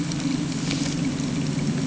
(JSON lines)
{"label": "anthrophony, boat engine", "recorder": "HydroMoth"}